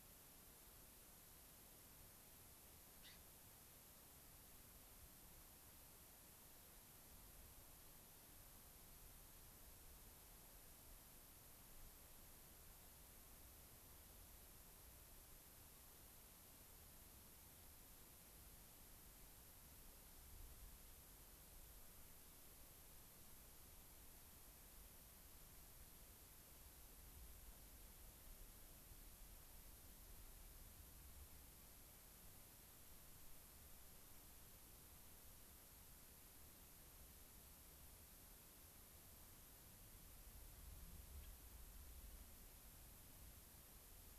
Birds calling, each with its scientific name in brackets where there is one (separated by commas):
Gray-crowned Rosy-Finch (Leucosticte tephrocotis)